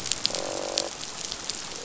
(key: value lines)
label: biophony, croak
recorder: SoundTrap 500